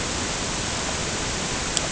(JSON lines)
{"label": "ambient", "recorder": "HydroMoth"}